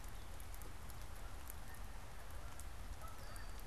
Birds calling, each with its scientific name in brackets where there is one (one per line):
Red-winged Blackbird (Agelaius phoeniceus)
Canada Goose (Branta canadensis)